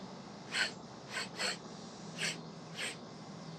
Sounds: Sniff